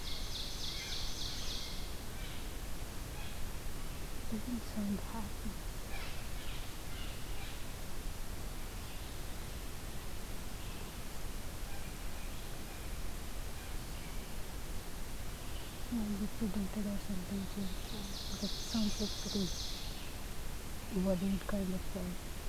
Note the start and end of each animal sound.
[0.00, 1.99] Ovenbird (Seiurus aurocapilla)
[3.03, 8.05] Blue Jay (Cyanocitta cristata)
[10.43, 15.91] Red-eyed Vireo (Vireo olivaceus)
[17.46, 20.24] Ovenbird (Seiurus aurocapilla)

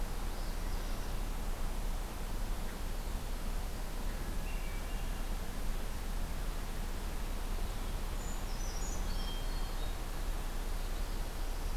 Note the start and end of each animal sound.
[0.00, 1.20] Northern Parula (Setophaga americana)
[4.04, 5.29] Hermit Thrush (Catharus guttatus)
[8.10, 9.35] Brown Creeper (Certhia americana)
[9.10, 9.94] Hermit Thrush (Catharus guttatus)
[10.62, 11.77] Northern Parula (Setophaga americana)

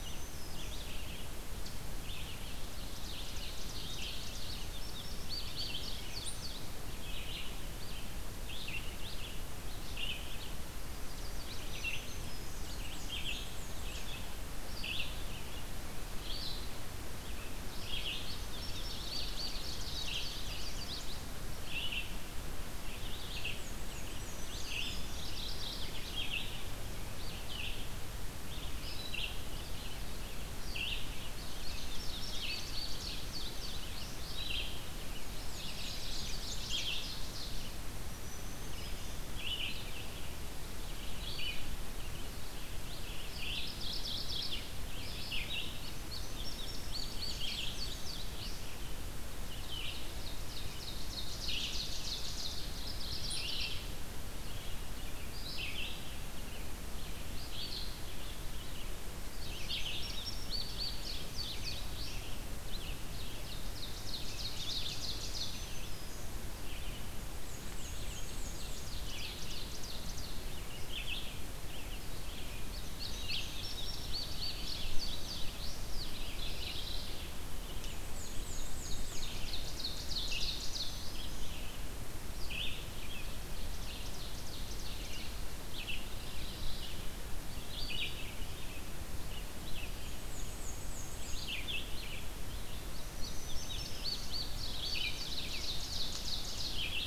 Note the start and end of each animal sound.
[0.00, 0.86] Black-throated Green Warbler (Setophaga virens)
[0.00, 97.07] Red-eyed Vireo (Vireo olivaceus)
[2.41, 4.85] Ovenbird (Seiurus aurocapilla)
[4.42, 6.57] Indigo Bunting (Passerina cyanea)
[10.69, 11.79] Chestnut-sided Warbler (Setophaga pensylvanica)
[11.56, 12.62] Black-throated Green Warbler (Setophaga virens)
[12.57, 14.16] Black-and-white Warbler (Mniotilta varia)
[17.91, 21.25] Indigo Bunting (Passerina cyanea)
[23.26, 25.03] Black-and-white Warbler (Mniotilta varia)
[23.95, 25.36] Black-throated Green Warbler (Setophaga virens)
[25.01, 26.02] Mourning Warbler (Geothlypis philadelphia)
[31.08, 34.41] Indigo Bunting (Passerina cyanea)
[35.16, 37.82] Ovenbird (Seiurus aurocapilla)
[35.23, 36.74] Black-and-white Warbler (Mniotilta varia)
[36.09, 37.07] Chestnut-sided Warbler (Setophaga pensylvanica)
[37.87, 39.25] Black-throated Green Warbler (Setophaga virens)
[43.46, 44.63] Mourning Warbler (Geothlypis philadelphia)
[45.75, 48.50] Indigo Bunting (Passerina cyanea)
[46.55, 48.00] Black-and-white Warbler (Mniotilta varia)
[50.02, 52.88] Ovenbird (Seiurus aurocapilla)
[52.60, 53.77] Mourning Warbler (Geothlypis philadelphia)
[59.43, 62.36] Indigo Bunting (Passerina cyanea)
[63.05, 65.67] Ovenbird (Seiurus aurocapilla)
[64.96, 66.38] Black-throated Green Warbler (Setophaga virens)
[67.25, 68.91] Black-and-white Warbler (Mniotilta varia)
[68.21, 70.41] Ovenbird (Seiurus aurocapilla)
[72.72, 76.17] Indigo Bunting (Passerina cyanea)
[76.04, 77.21] Mourning Warbler (Geothlypis philadelphia)
[77.72, 79.33] Black-and-white Warbler (Mniotilta varia)
[78.56, 81.00] Ovenbird (Seiurus aurocapilla)
[80.31, 81.55] Black-throated Green Warbler (Setophaga virens)
[83.36, 85.17] Ovenbird (Seiurus aurocapilla)
[86.03, 87.03] Mourning Warbler (Geothlypis philadelphia)
[89.94, 91.51] Black-and-white Warbler (Mniotilta varia)
[92.27, 95.87] Indigo Bunting (Passerina cyanea)
[92.95, 94.38] Black-throated Green Warbler (Setophaga virens)
[94.13, 96.99] Ovenbird (Seiurus aurocapilla)

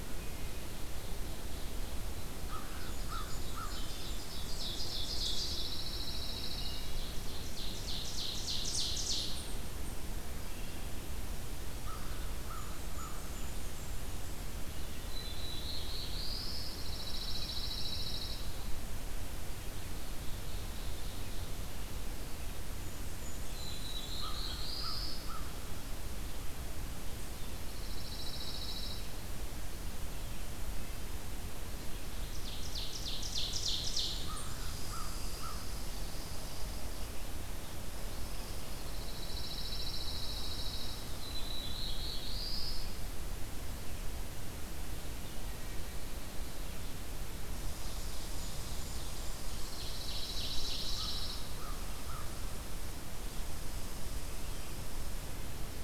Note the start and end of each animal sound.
[0.00, 0.76] Wood Thrush (Hylocichla mustelina)
[0.33, 2.20] Ovenbird (Seiurus aurocapilla)
[2.12, 3.84] American Crow (Corvus brachyrhynchos)
[2.59, 4.37] Blackburnian Warbler (Setophaga fusca)
[2.87, 5.69] Ovenbird (Seiurus aurocapilla)
[5.30, 6.87] Pine Warbler (Setophaga pinus)
[6.72, 9.63] Ovenbird (Seiurus aurocapilla)
[11.75, 13.36] American Crow (Corvus brachyrhynchos)
[12.50, 14.51] Blackburnian Warbler (Setophaga fusca)
[14.85, 16.62] Black-throated Blue Warbler (Setophaga caerulescens)
[16.22, 18.50] Pine Warbler (Setophaga pinus)
[19.60, 21.80] Ovenbird (Seiurus aurocapilla)
[22.41, 24.70] Blackburnian Warbler (Setophaga fusca)
[23.24, 25.37] Black-throated Blue Warbler (Setophaga caerulescens)
[24.05, 25.61] American Crow (Corvus brachyrhynchos)
[27.46, 29.26] Pine Warbler (Setophaga pinus)
[32.03, 34.32] Ovenbird (Seiurus aurocapilla)
[33.27, 35.28] Blackburnian Warbler (Setophaga fusca)
[34.19, 35.81] American Crow (Corvus brachyrhynchos)
[34.44, 39.22] Red Squirrel (Tamiasciurus hudsonicus)
[38.74, 41.36] Pine Warbler (Setophaga pinus)
[41.00, 42.89] Black-throated Blue Warbler (Setophaga caerulescens)
[47.47, 55.83] Red Squirrel (Tamiasciurus hudsonicus)
[47.87, 49.71] Blackburnian Warbler (Setophaga fusca)
[49.47, 51.55] Ovenbird (Seiurus aurocapilla)
[50.77, 52.34] American Crow (Corvus brachyrhynchos)

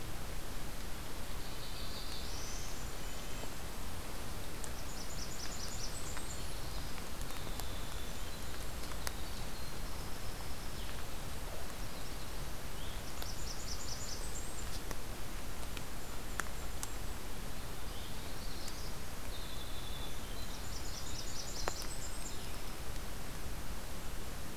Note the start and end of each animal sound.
[1.15, 2.82] Black-throated Blue Warbler (Setophaga caerulescens)
[1.86, 3.97] Golden-crowned Kinglet (Regulus satrapa)
[2.72, 3.58] Red-breasted Nuthatch (Sitta canadensis)
[4.62, 6.45] Blackburnian Warbler (Setophaga fusca)
[5.69, 10.98] Winter Wren (Troglodytes hiemalis)
[7.86, 10.39] Golden-crowned Kinglet (Regulus satrapa)
[11.50, 12.65] Magnolia Warbler (Setophaga magnolia)
[12.97, 14.67] Blackburnian Warbler (Setophaga fusca)
[15.40, 17.27] Golden-crowned Kinglet (Regulus satrapa)
[18.16, 18.96] unidentified call
[19.19, 22.90] Winter Wren (Troglodytes hiemalis)
[20.41, 22.54] Blackburnian Warbler (Setophaga fusca)

